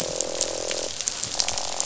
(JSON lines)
{"label": "biophony, croak", "recorder": "SoundTrap 500"}